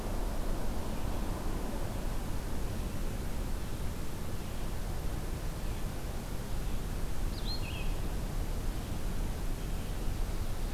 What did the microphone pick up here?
Red-eyed Vireo